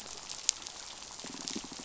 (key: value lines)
label: biophony, pulse
recorder: SoundTrap 500